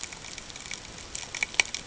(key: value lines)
label: ambient
recorder: HydroMoth